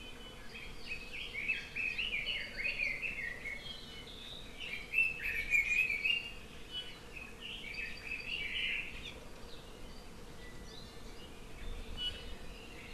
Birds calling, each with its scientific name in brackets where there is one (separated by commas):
Iiwi (Drepanis coccinea), Red-billed Leiothrix (Leiothrix lutea)